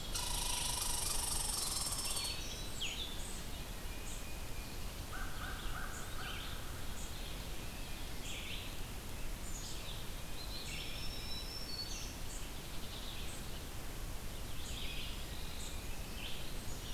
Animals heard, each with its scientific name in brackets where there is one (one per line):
Black-throated Green Warbler (Setophaga virens)
Tufted Titmouse (Baeolophus bicolor)
American Crow (Corvus brachyrhynchos)
unknown mammal
Blue-headed Vireo (Vireo solitarius)
Black-capped Chickadee (Poecile atricapillus)
Eastern Wood-Pewee (Contopus virens)
Red Squirrel (Tamiasciurus hudsonicus)
Red-eyed Vireo (Vireo olivaceus)